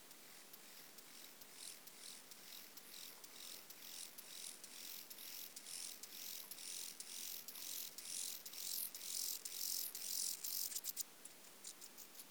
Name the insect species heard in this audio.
Chorthippus mollis